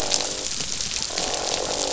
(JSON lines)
{"label": "biophony, croak", "recorder": "SoundTrap 500"}